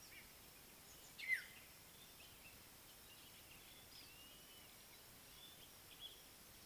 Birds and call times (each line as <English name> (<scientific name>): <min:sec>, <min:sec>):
African Black-headed Oriole (Oriolus larvatus): 0:01.3
Violet-backed Starling (Cinnyricinclus leucogaster): 0:04.2